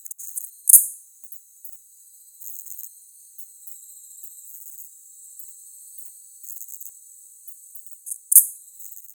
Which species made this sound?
Poecilimon macedonicus